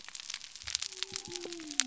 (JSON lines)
{"label": "biophony", "recorder": "SoundTrap 300"}